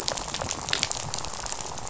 {"label": "biophony, rattle", "recorder": "SoundTrap 500"}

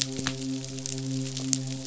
{"label": "biophony, midshipman", "recorder": "SoundTrap 500"}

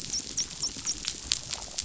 {"label": "biophony, dolphin", "recorder": "SoundTrap 500"}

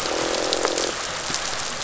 {"label": "biophony, croak", "recorder": "SoundTrap 500"}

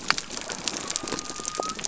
{"label": "biophony", "recorder": "SoundTrap 300"}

